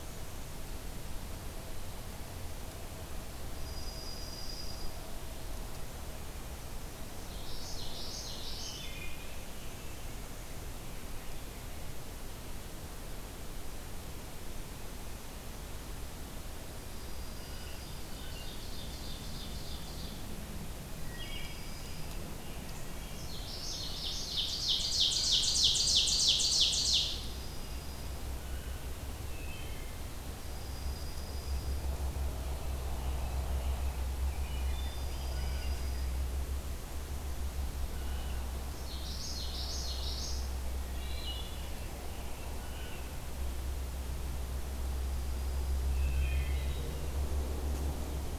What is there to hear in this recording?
Dark-eyed Junco, Common Yellowthroat, Wood Thrush, Blue Jay, Ovenbird, American Robin